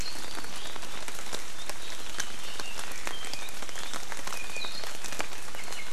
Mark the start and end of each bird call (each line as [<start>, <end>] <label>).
[2.13, 3.63] Red-billed Leiothrix (Leiothrix lutea)
[4.33, 4.73] Iiwi (Drepanis coccinea)